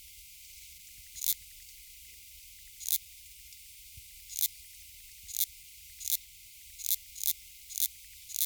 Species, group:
Tessellana tessellata, Orthoptera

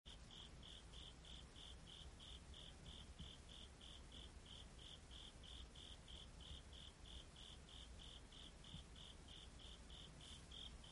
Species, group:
Velarifictorus micado, Orthoptera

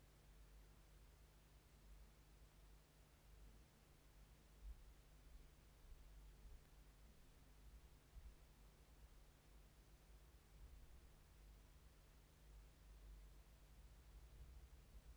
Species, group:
Chorthippus biguttulus, Orthoptera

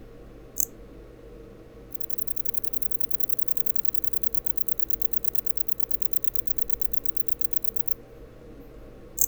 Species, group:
Vichetia oblongicollis, Orthoptera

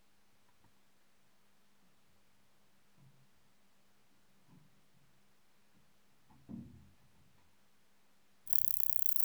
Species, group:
Metrioptera prenjica, Orthoptera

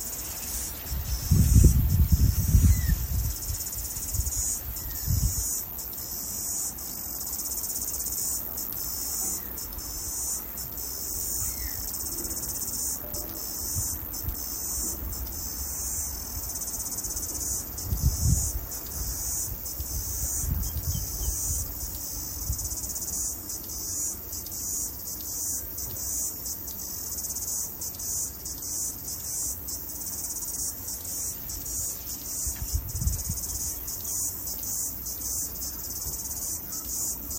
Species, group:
Amphipsalta cingulata, Cicadidae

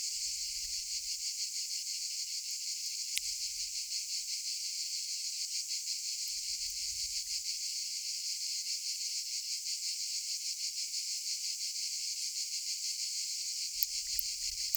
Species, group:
Tylopsis lilifolia, Orthoptera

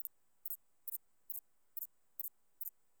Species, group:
Thyreonotus corsicus, Orthoptera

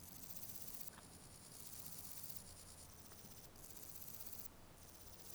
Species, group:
Parnassiana chelmos, Orthoptera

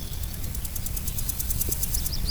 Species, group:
Chrysochraon dispar, Orthoptera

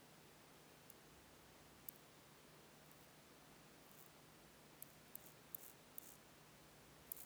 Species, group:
Chorthippus mollis, Orthoptera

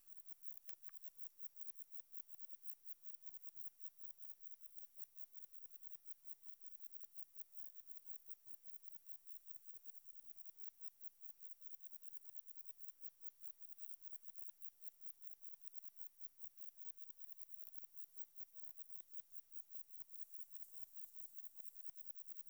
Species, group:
Metrioptera saussuriana, Orthoptera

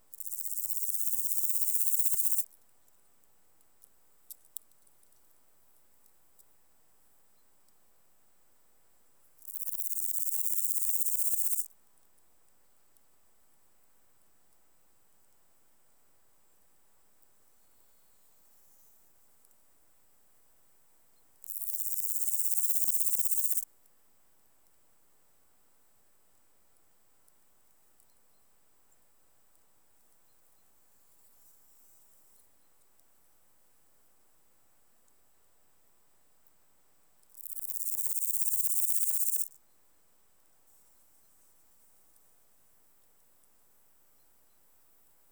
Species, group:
Omocestus antigai, Orthoptera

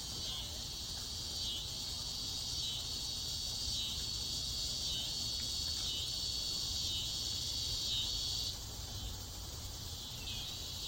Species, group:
Neotibicen pruinosus, Cicadidae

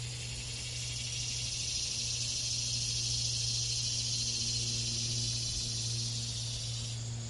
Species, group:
Neotibicen tibicen, Cicadidae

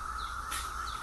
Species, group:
Magicicada septendecim, Cicadidae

